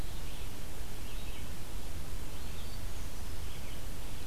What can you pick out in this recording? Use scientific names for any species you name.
Vireo olivaceus, Catharus guttatus